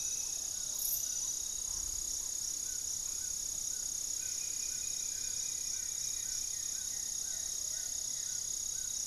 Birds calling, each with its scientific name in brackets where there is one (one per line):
Plumbeous Pigeon (Patagioenas plumbea)
Black-faced Antthrush (Formicarius analis)
Goeldi's Antbird (Akletos goeldii)
Amazonian Trogon (Trogon ramonianus)
unidentified bird